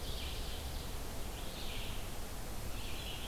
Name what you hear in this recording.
Ovenbird, Red-eyed Vireo